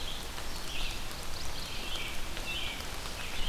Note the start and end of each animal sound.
[0.00, 3.48] Red-eyed Vireo (Vireo olivaceus)
[0.94, 2.16] Mourning Warbler (Geothlypis philadelphia)
[1.70, 3.48] American Robin (Turdus migratorius)

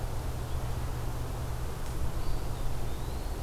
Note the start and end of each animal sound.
[2.08, 3.43] Eastern Wood-Pewee (Contopus virens)

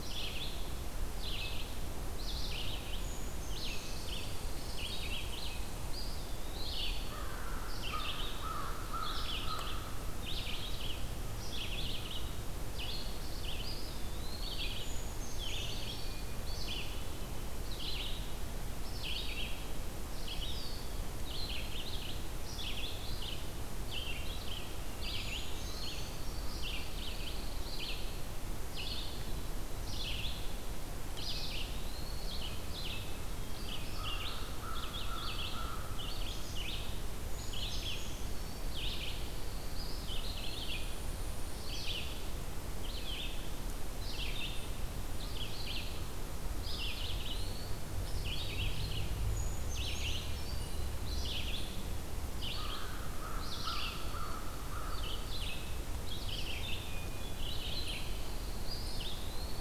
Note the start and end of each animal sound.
[0.00, 59.60] Red-eyed Vireo (Vireo olivaceus)
[2.78, 4.38] Brown Creeper (Certhia americana)
[3.75, 5.83] Red Squirrel (Tamiasciurus hudsonicus)
[5.75, 7.28] Eastern Wood-Pewee (Contopus virens)
[7.06, 10.04] American Crow (Corvus brachyrhynchos)
[13.50, 14.89] Eastern Wood-Pewee (Contopus virens)
[14.64, 16.27] Brown Creeper (Certhia americana)
[16.00, 17.63] Hermit Thrush (Catharus guttatus)
[20.15, 21.03] Eastern Wood-Pewee (Contopus virens)
[25.11, 26.63] Brown Creeper (Certhia americana)
[26.44, 27.89] Pine Warbler (Setophaga pinus)
[31.14, 32.71] Eastern Wood-Pewee (Contopus virens)
[32.69, 33.72] Hermit Thrush (Catharus guttatus)
[33.84, 36.34] American Crow (Corvus brachyrhynchos)
[37.25, 38.71] Brown Creeper (Certhia americana)
[38.70, 40.02] Pine Warbler (Setophaga pinus)
[39.62, 40.89] Eastern Wood-Pewee (Contopus virens)
[39.95, 41.75] Blackpoll Warbler (Setophaga striata)
[46.47, 47.88] Eastern Wood-Pewee (Contopus virens)
[49.05, 50.40] Brown Creeper (Certhia americana)
[50.14, 50.91] Hermit Thrush (Catharus guttatus)
[52.32, 55.27] American Crow (Corvus brachyrhynchos)
[56.54, 57.76] Hermit Thrush (Catharus guttatus)
[57.73, 59.08] Pine Warbler (Setophaga pinus)
[58.58, 59.60] Eastern Wood-Pewee (Contopus virens)

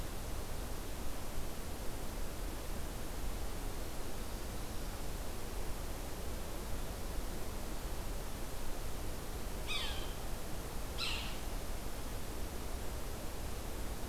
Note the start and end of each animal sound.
[9.45, 10.25] Yellow-bellied Sapsucker (Sphyrapicus varius)
[10.78, 11.46] Yellow-bellied Sapsucker (Sphyrapicus varius)

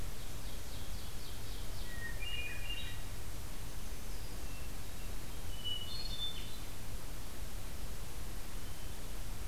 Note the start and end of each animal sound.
[0.00, 1.98] Ovenbird (Seiurus aurocapilla)
[1.83, 3.17] Hermit Thrush (Catharus guttatus)
[3.43, 4.60] Black-throated Green Warbler (Setophaga virens)
[4.36, 6.81] Hermit Thrush (Catharus guttatus)
[8.49, 9.07] Hermit Thrush (Catharus guttatus)

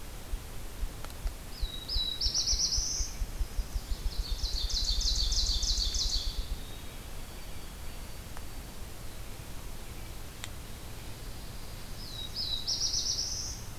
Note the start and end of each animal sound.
[1.27, 3.34] Black-throated Blue Warbler (Setophaga caerulescens)
[3.00, 4.22] Chestnut-sided Warbler (Setophaga pensylvanica)
[3.72, 6.61] Ovenbird (Seiurus aurocapilla)
[6.43, 9.06] White-throated Sparrow (Zonotrichia albicollis)
[10.60, 12.35] Pine Warbler (Setophaga pinus)
[11.87, 13.78] Black-throated Blue Warbler (Setophaga caerulescens)

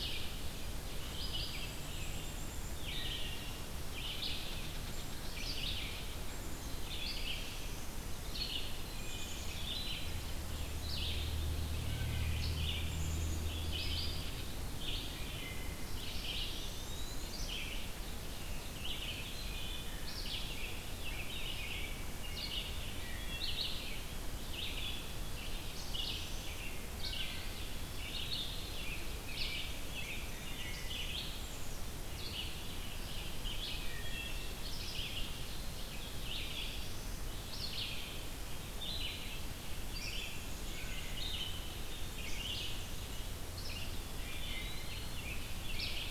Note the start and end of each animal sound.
[0.00, 31.96] Black-capped Chickadee (Poecile atricapillus)
[0.00, 35.36] Red-eyed Vireo (Vireo olivaceus)
[2.81, 3.40] Wood Thrush (Hylocichla mustelina)
[3.88, 6.02] unknown mammal
[8.79, 9.45] Wood Thrush (Hylocichla mustelina)
[11.72, 12.56] Wood Thrush (Hylocichla mustelina)
[15.11, 15.82] Wood Thrush (Hylocichla mustelina)
[15.88, 17.69] Eastern Wood-Pewee (Contopus virens)
[19.16, 20.09] Wood Thrush (Hylocichla mustelina)
[22.95, 23.59] Wood Thrush (Hylocichla mustelina)
[26.98, 27.50] Wood Thrush (Hylocichla mustelina)
[27.21, 28.47] Eastern Wood-Pewee (Contopus virens)
[33.79, 34.74] Wood Thrush (Hylocichla mustelina)
[35.75, 37.27] Black-throated Blue Warbler (Setophaga caerulescens)
[36.04, 46.10] Red-eyed Vireo (Vireo olivaceus)
[40.56, 41.43] Wood Thrush (Hylocichla mustelina)
[43.40, 45.39] Eastern Wood-Pewee (Contopus virens)

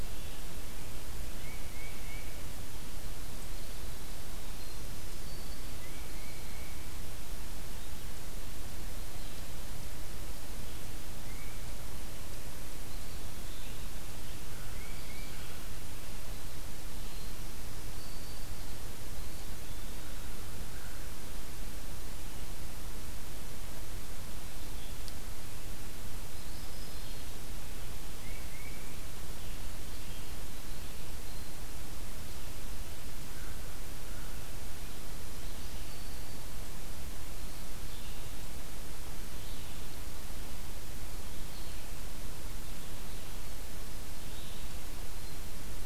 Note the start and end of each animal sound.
[1.26, 2.36] Tufted Titmouse (Baeolophus bicolor)
[5.65, 6.99] Tufted Titmouse (Baeolophus bicolor)
[11.06, 11.76] Tufted Titmouse (Baeolophus bicolor)
[14.52, 15.73] American Crow (Corvus brachyrhynchos)
[14.64, 15.36] Tufted Titmouse (Baeolophus bicolor)
[17.53, 18.53] Black-throated Green Warbler (Setophaga virens)
[26.27, 27.57] Black-throated Green Warbler (Setophaga virens)
[28.09, 29.04] Tufted Titmouse (Baeolophus bicolor)
[35.57, 36.52] Black-throated Green Warbler (Setophaga virens)
[37.51, 45.85] Red-eyed Vireo (Vireo olivaceus)

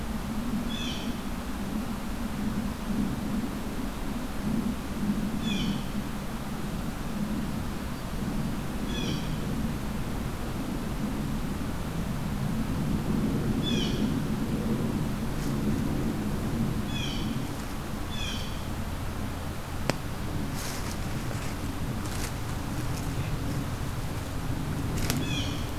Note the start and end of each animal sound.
[0.61, 1.22] Blue Jay (Cyanocitta cristata)
[5.27, 5.82] Blue Jay (Cyanocitta cristata)
[8.78, 9.38] Blue Jay (Cyanocitta cristata)
[13.51, 14.17] Blue Jay (Cyanocitta cristata)
[16.87, 17.35] Blue Jay (Cyanocitta cristata)
[18.05, 18.71] Blue Jay (Cyanocitta cristata)
[25.03, 25.79] Blue Jay (Cyanocitta cristata)

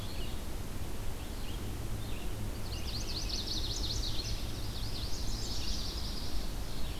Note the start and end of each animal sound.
[0.00, 6.99] Red-eyed Vireo (Vireo olivaceus)
[2.52, 6.23] Chestnut-sided Warbler (Setophaga pensylvanica)

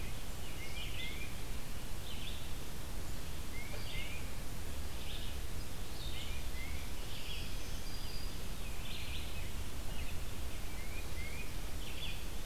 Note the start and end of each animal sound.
[0.00, 7.67] Red-eyed Vireo (Vireo olivaceus)
[0.46, 1.31] Tufted Titmouse (Baeolophus bicolor)
[3.46, 4.24] Tufted Titmouse (Baeolophus bicolor)
[5.97, 7.06] Tufted Titmouse (Baeolophus bicolor)
[7.08, 8.29] Black-throated Green Warbler (Setophaga virens)
[8.58, 12.45] Red-eyed Vireo (Vireo olivaceus)
[10.64, 11.67] Tufted Titmouse (Baeolophus bicolor)

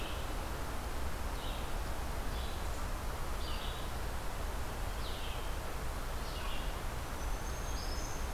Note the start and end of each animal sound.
[0.00, 6.67] Red-eyed Vireo (Vireo olivaceus)
[6.93, 8.33] Black-throated Green Warbler (Setophaga virens)

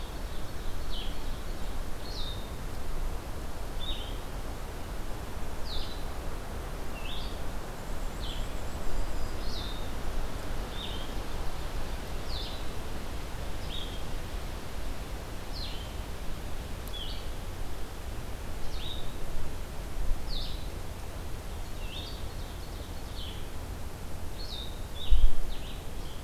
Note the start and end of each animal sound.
[0.00, 1.88] Ovenbird (Seiurus aurocapilla)
[0.00, 26.23] Blue-headed Vireo (Vireo solitarius)
[7.66, 9.45] Black-and-white Warbler (Mniotilta varia)
[8.56, 9.88] Black-throated Green Warbler (Setophaga virens)
[21.30, 23.26] Ovenbird (Seiurus aurocapilla)

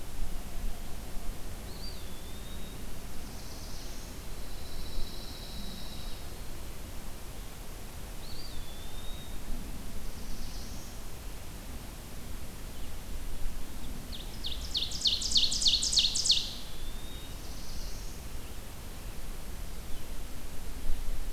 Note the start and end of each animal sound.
[1.54, 2.94] Eastern Wood-Pewee (Contopus virens)
[2.81, 4.19] Black-throated Blue Warbler (Setophaga caerulescens)
[4.29, 6.32] Pine Warbler (Setophaga pinus)
[7.95, 9.62] Eastern Wood-Pewee (Contopus virens)
[9.64, 11.08] Black-throated Blue Warbler (Setophaga caerulescens)
[13.87, 16.84] Ovenbird (Seiurus aurocapilla)
[16.39, 17.39] Eastern Wood-Pewee (Contopus virens)
[16.96, 18.23] Black-throated Blue Warbler (Setophaga caerulescens)

